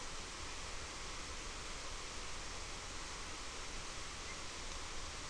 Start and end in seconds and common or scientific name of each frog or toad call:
none